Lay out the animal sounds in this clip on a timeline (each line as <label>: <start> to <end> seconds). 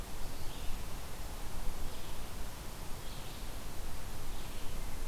Red-eyed Vireo (Vireo olivaceus): 0.0 to 5.1 seconds